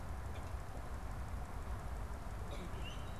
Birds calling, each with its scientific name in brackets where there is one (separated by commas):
Common Grackle (Quiscalus quiscula)